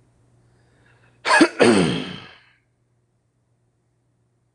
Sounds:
Throat clearing